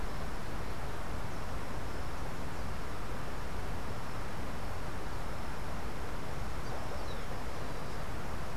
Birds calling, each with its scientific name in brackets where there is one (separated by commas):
Rufous-collared Sparrow (Zonotrichia capensis)